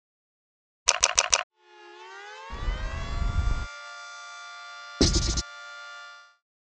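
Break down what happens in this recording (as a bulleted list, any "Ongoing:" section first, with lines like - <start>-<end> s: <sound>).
Ongoing:
- 1.5-6.4 s: a quiet civil defense siren fades in and later fades out
Other sounds:
- 0.9-1.4 s: the sound of a camera is heard
- 2.5-3.7 s: there is wind
- 5.0-5.4 s: you can hear writing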